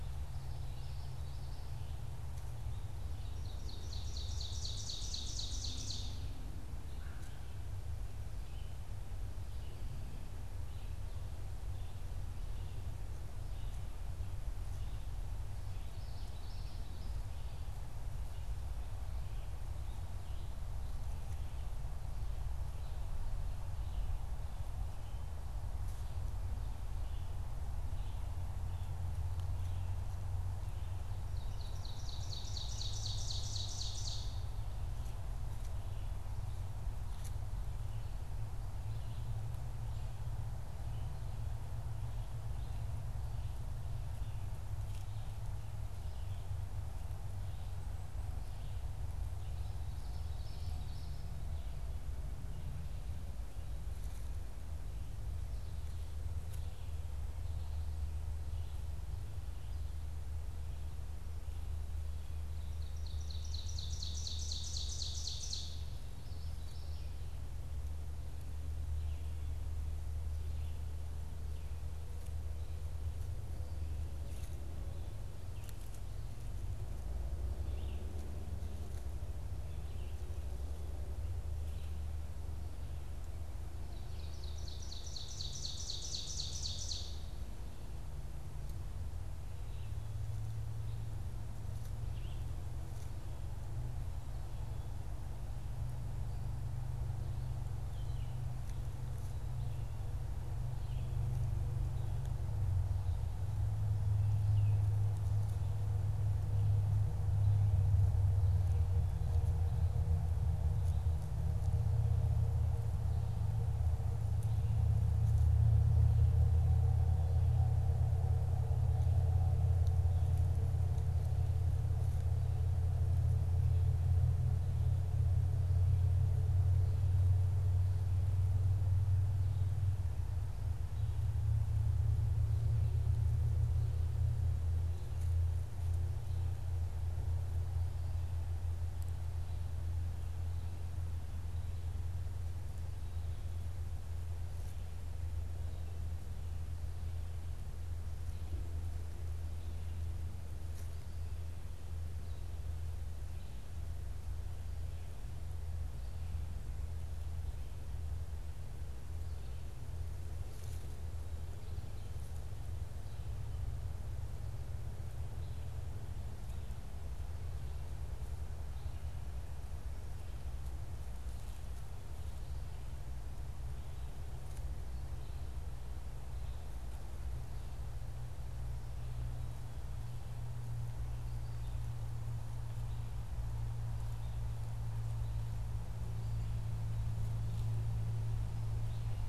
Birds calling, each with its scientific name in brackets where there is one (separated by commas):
Common Yellowthroat (Geothlypis trichas), Red-eyed Vireo (Vireo olivaceus), Ovenbird (Seiurus aurocapilla)